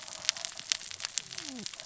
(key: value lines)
label: biophony, cascading saw
recorder: SoundTrap 600 or HydroMoth